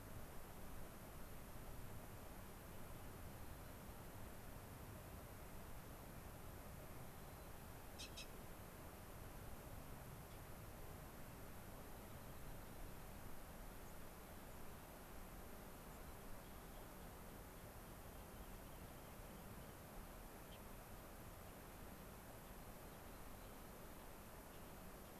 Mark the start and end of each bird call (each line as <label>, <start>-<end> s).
White-crowned Sparrow (Zonotrichia leucophrys), 3.3-3.8 s
White-crowned Sparrow (Zonotrichia leucophrys), 7.0-7.6 s
unidentified bird, 10.3-10.4 s
Rock Wren (Salpinctes obsoletus), 11.8-13.3 s
White-crowned Sparrow (Zonotrichia leucophrys), 13.9-14.0 s
White-crowned Sparrow (Zonotrichia leucophrys), 14.5-14.7 s
White-crowned Sparrow (Zonotrichia leucophrys), 15.9-16.1 s
Rock Wren (Salpinctes obsoletus), 16.0-19.9 s
unidentified bird, 20.5-20.6 s
Rock Wren (Salpinctes obsoletus), 22.4-24.2 s